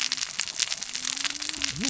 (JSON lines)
{"label": "biophony, cascading saw", "recorder": "SoundTrap 600 or HydroMoth"}